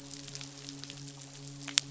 {"label": "biophony, midshipman", "recorder": "SoundTrap 500"}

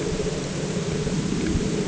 {"label": "anthrophony, boat engine", "recorder": "HydroMoth"}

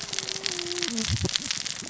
{"label": "biophony, cascading saw", "recorder": "SoundTrap 600 or HydroMoth"}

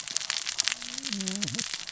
{"label": "biophony, cascading saw", "recorder": "SoundTrap 600 or HydroMoth"}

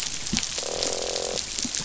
{"label": "biophony, croak", "recorder": "SoundTrap 500"}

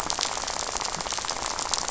{"label": "biophony, rattle", "recorder": "SoundTrap 500"}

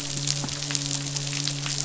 {"label": "biophony, midshipman", "recorder": "SoundTrap 500"}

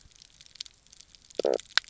{"label": "biophony, knock croak", "recorder": "SoundTrap 300"}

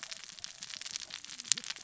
{"label": "biophony, cascading saw", "recorder": "SoundTrap 600 or HydroMoth"}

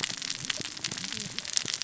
{"label": "biophony, cascading saw", "recorder": "SoundTrap 600 or HydroMoth"}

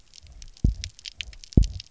{"label": "biophony, double pulse", "recorder": "SoundTrap 300"}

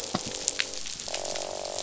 {"label": "biophony, croak", "recorder": "SoundTrap 500"}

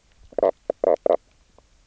{"label": "biophony, knock croak", "recorder": "SoundTrap 300"}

